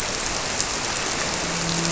{"label": "biophony, grouper", "recorder": "SoundTrap 300"}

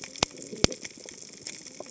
{"label": "biophony, cascading saw", "recorder": "HydroMoth"}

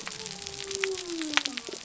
{"label": "biophony", "recorder": "SoundTrap 300"}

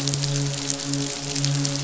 {"label": "biophony, midshipman", "recorder": "SoundTrap 500"}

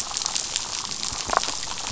{"label": "biophony, damselfish", "recorder": "SoundTrap 500"}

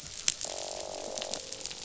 {"label": "biophony, croak", "recorder": "SoundTrap 500"}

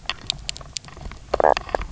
{"label": "biophony, knock croak", "recorder": "SoundTrap 300"}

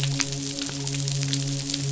{"label": "biophony, midshipman", "recorder": "SoundTrap 500"}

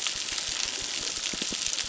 {"label": "biophony, crackle", "recorder": "SoundTrap 600"}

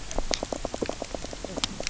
{"label": "biophony, knock croak", "recorder": "SoundTrap 300"}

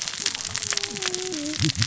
{"label": "biophony, cascading saw", "recorder": "SoundTrap 600 or HydroMoth"}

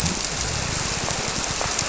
{"label": "biophony", "recorder": "SoundTrap 300"}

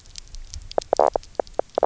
{"label": "biophony, knock croak", "recorder": "SoundTrap 300"}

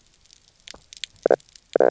{"label": "biophony, knock croak", "recorder": "SoundTrap 300"}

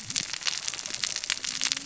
{"label": "biophony, cascading saw", "recorder": "SoundTrap 600 or HydroMoth"}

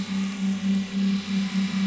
{"label": "anthrophony, boat engine", "recorder": "SoundTrap 500"}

